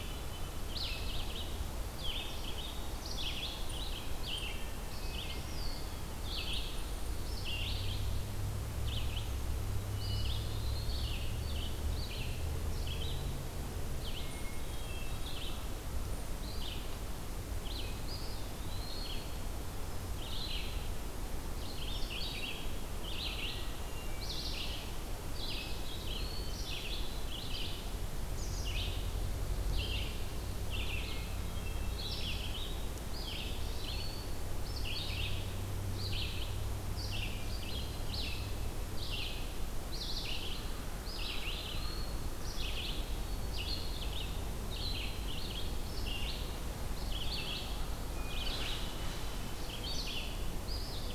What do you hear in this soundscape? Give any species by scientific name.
Catharus guttatus, Vireo olivaceus, Contopus virens